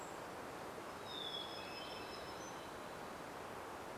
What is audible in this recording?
Golden-crowned Kinglet call, Hermit Thrush song, Hermit Warbler song